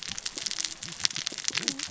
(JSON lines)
{"label": "biophony, cascading saw", "recorder": "SoundTrap 600 or HydroMoth"}